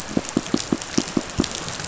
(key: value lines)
label: biophony, pulse
recorder: SoundTrap 500